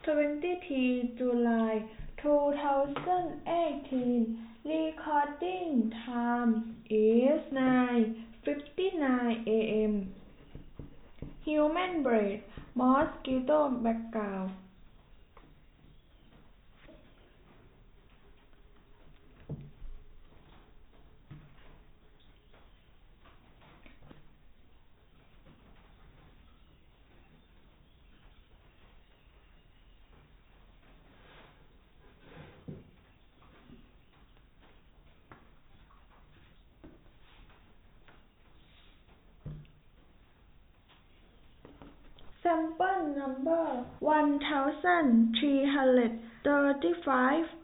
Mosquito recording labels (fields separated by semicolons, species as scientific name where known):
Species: no mosquito; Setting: cup